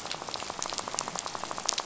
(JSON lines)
{"label": "biophony, rattle", "recorder": "SoundTrap 500"}